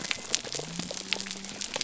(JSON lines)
{"label": "biophony", "recorder": "SoundTrap 300"}